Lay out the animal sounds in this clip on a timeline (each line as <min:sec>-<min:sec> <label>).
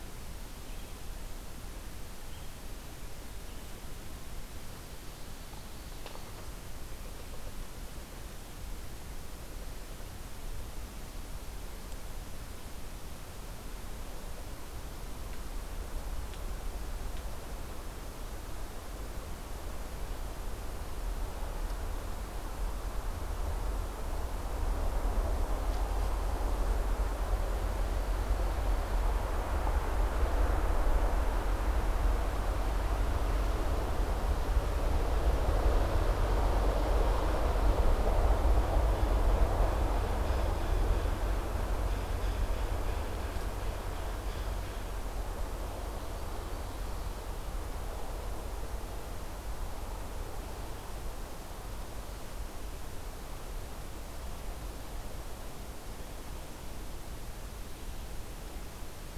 0:00.3-0:03.9 Red-eyed Vireo (Vireo olivaceus)
0:45.6-0:47.6 Ovenbird (Seiurus aurocapilla)